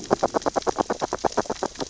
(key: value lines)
label: biophony, grazing
recorder: SoundTrap 600 or HydroMoth